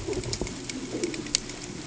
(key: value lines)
label: ambient
recorder: HydroMoth